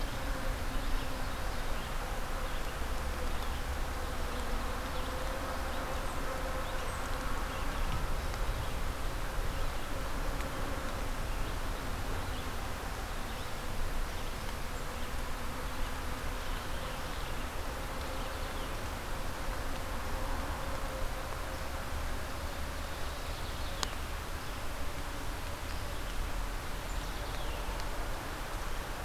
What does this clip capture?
forest ambience